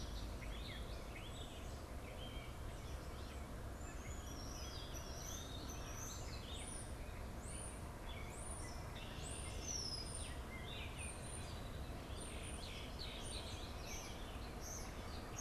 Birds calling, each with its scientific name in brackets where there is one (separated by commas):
Gray Catbird (Dumetella carolinensis), Red-winged Blackbird (Agelaius phoeniceus), European Starling (Sturnus vulgaris)